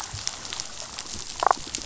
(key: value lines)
label: biophony, damselfish
recorder: SoundTrap 500